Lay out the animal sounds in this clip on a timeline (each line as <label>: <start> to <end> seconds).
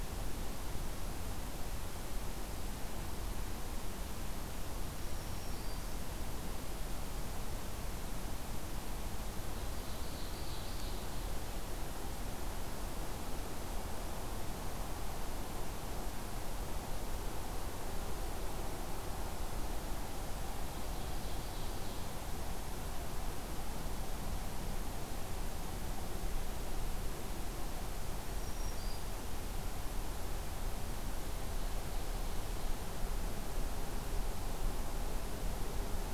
Black-throated Green Warbler (Setophaga virens): 4.9 to 6.0 seconds
Ovenbird (Seiurus aurocapilla): 9.6 to 11.2 seconds
Ovenbird (Seiurus aurocapilla): 20.9 to 22.1 seconds
Black-throated Green Warbler (Setophaga virens): 28.4 to 29.1 seconds